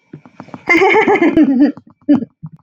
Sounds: Laughter